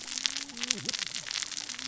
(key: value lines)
label: biophony, cascading saw
recorder: SoundTrap 600 or HydroMoth